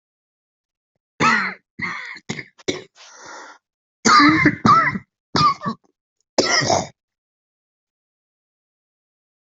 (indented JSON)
{
  "expert_labels": [
    {
      "quality": "good",
      "cough_type": "wet",
      "dyspnea": false,
      "wheezing": false,
      "stridor": false,
      "choking": false,
      "congestion": false,
      "nothing": true,
      "diagnosis": "lower respiratory tract infection",
      "severity": "unknown"
    }
  ],
  "age": 34,
  "gender": "male",
  "respiratory_condition": false,
  "fever_muscle_pain": false,
  "status": "symptomatic"
}